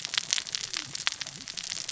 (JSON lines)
{"label": "biophony, cascading saw", "recorder": "SoundTrap 600 or HydroMoth"}